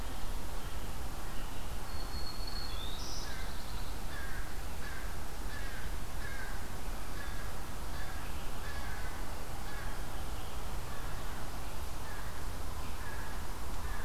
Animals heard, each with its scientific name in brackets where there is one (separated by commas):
Black-throated Green Warbler (Setophaga virens), Pine Warbler (Setophaga pinus), American Crow (Corvus brachyrhynchos)